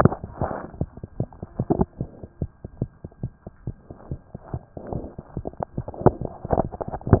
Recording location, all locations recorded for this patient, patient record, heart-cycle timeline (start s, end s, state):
pulmonary valve (PV)
aortic valve (AV)+pulmonary valve (PV)+mitral valve (MV)
#Age: Infant
#Sex: Female
#Height: nan
#Weight: 9.8 kg
#Pregnancy status: False
#Murmur: Absent
#Murmur locations: nan
#Most audible location: nan
#Systolic murmur timing: nan
#Systolic murmur shape: nan
#Systolic murmur grading: nan
#Systolic murmur pitch: nan
#Systolic murmur quality: nan
#Diastolic murmur timing: nan
#Diastolic murmur shape: nan
#Diastolic murmur grading: nan
#Diastolic murmur pitch: nan
#Diastolic murmur quality: nan
#Outcome: Abnormal
#Campaign: 2014 screening campaign
0.00	2.26	unannotated
2.26	2.40	diastole
2.40	2.50	S1
2.50	2.64	systole
2.64	2.70	S2
2.70	2.81	diastole
2.81	2.91	S1
2.91	3.04	systole
3.04	3.10	S2
3.10	3.23	diastole
3.23	3.32	S1
3.32	3.45	systole
3.45	3.52	S2
3.52	3.67	diastole
3.67	3.75	S1
3.75	3.89	systole
3.89	3.95	S2
3.95	4.11	diastole
4.11	4.19	S1
4.19	4.34	systole
4.34	4.40	S2
4.40	4.53	diastole
4.53	7.20	unannotated